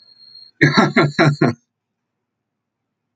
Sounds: Laughter